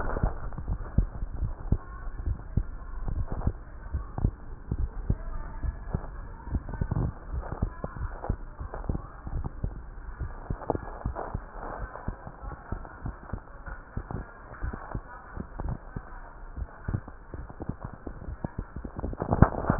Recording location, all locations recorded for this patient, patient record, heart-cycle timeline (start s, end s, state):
tricuspid valve (TV)
aortic valve (AV)+pulmonary valve (PV)+tricuspid valve (TV)+mitral valve (MV)
#Age: Child
#Sex: Female
#Height: 138.0 cm
#Weight: 33.5 kg
#Pregnancy status: False
#Murmur: Unknown
#Murmur locations: nan
#Most audible location: nan
#Systolic murmur timing: nan
#Systolic murmur shape: nan
#Systolic murmur grading: nan
#Systolic murmur pitch: nan
#Systolic murmur quality: nan
#Diastolic murmur timing: nan
#Diastolic murmur shape: nan
#Diastolic murmur grading: nan
#Diastolic murmur pitch: nan
#Diastolic murmur quality: nan
#Outcome: Normal
#Campaign: 2015 screening campaign
0.00	8.86	unannotated
8.86	9.28	diastole
9.28	9.44	S1
9.44	9.62	systole
9.62	9.74	S2
9.74	10.20	diastole
10.20	10.32	S1
10.32	10.46	systole
10.46	10.58	S2
10.58	11.03	diastole
11.03	11.18	S1
11.18	11.32	systole
11.32	11.42	S2
11.42	11.75	diastole
11.75	11.88	S1
11.88	12.04	systole
12.04	12.18	S2
12.18	12.42	diastole
12.42	12.57	S1
12.57	12.69	systole
12.69	12.82	S2
12.82	13.02	diastole
13.02	13.13	S1
13.13	13.29	systole
13.29	13.39	S2
13.39	13.66	diastole
13.66	13.78	S1
13.78	13.95	systole
13.95	14.04	S2
14.04	14.62	diastole
14.62	14.78	S1
14.78	14.92	systole
14.92	15.04	S2
15.04	15.29	diastole
15.29	15.44	S1
15.44	15.59	systole
15.59	15.78	S2
15.78	16.53	diastole
16.53	16.68	S1
16.68	16.86	systole
16.86	17.00	S2
17.00	17.34	diastole
17.34	17.48	S1
17.48	17.65	systole
17.65	19.79	unannotated